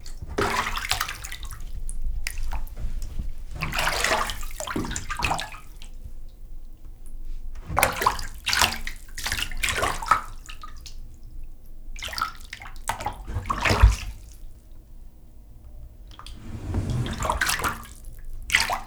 Is this near a stream?
no